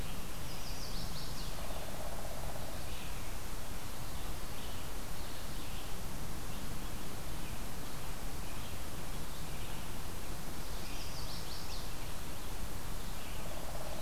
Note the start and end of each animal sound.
[0.39, 1.58] Chestnut-sided Warbler (Setophaga pensylvanica)
[10.65, 12.02] Chestnut-sided Warbler (Setophaga pensylvanica)

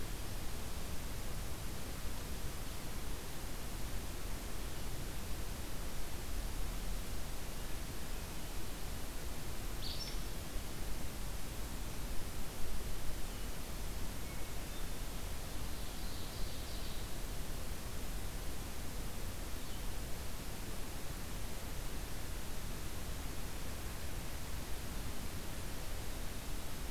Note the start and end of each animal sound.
[9.75, 10.17] Acadian Flycatcher (Empidonax virescens)
[15.42, 17.14] Ovenbird (Seiurus aurocapilla)

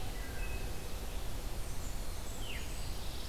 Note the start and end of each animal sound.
[0.03, 0.91] Wood Thrush (Hylocichla mustelina)
[1.34, 3.21] Blackburnian Warbler (Setophaga fusca)
[2.22, 2.72] Veery (Catharus fuscescens)

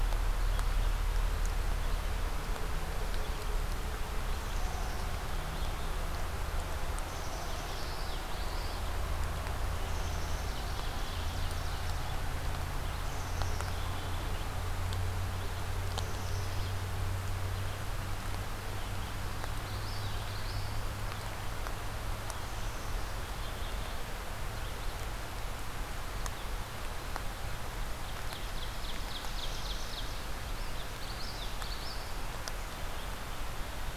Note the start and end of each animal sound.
[4.29, 5.99] Black-capped Chickadee (Poecile atricapillus)
[7.00, 7.79] Black-capped Chickadee (Poecile atricapillus)
[7.28, 8.94] Common Yellowthroat (Geothlypis trichas)
[9.80, 10.63] Black-capped Chickadee (Poecile atricapillus)
[10.35, 12.22] Ovenbird (Seiurus aurocapilla)
[12.84, 14.53] Black-capped Chickadee (Poecile atricapillus)
[15.82, 17.00] Black-capped Chickadee (Poecile atricapillus)
[19.58, 20.91] Common Yellowthroat (Geothlypis trichas)
[22.94, 23.94] Black-capped Chickadee (Poecile atricapillus)
[27.81, 30.31] Ovenbird (Seiurus aurocapilla)
[30.61, 32.13] Common Yellowthroat (Geothlypis trichas)

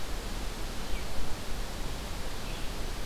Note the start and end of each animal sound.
[2.26, 3.06] Red-eyed Vireo (Vireo olivaceus)

